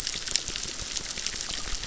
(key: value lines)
label: biophony, crackle
recorder: SoundTrap 600